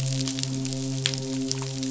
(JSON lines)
{"label": "biophony, midshipman", "recorder": "SoundTrap 500"}